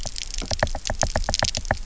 {"label": "biophony, knock", "recorder": "SoundTrap 300"}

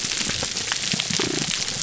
{"label": "biophony, damselfish", "recorder": "SoundTrap 300"}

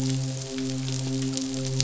{"label": "biophony, midshipman", "recorder": "SoundTrap 500"}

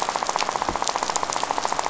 {"label": "biophony, rattle", "recorder": "SoundTrap 500"}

